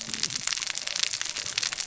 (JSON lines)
{"label": "biophony, cascading saw", "recorder": "SoundTrap 600 or HydroMoth"}